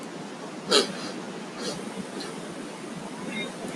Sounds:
Sniff